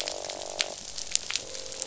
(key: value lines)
label: biophony, croak
recorder: SoundTrap 500